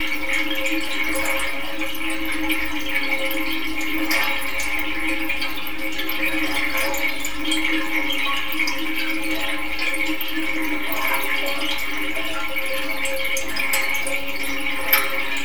Is it a drainage mechanism?
yes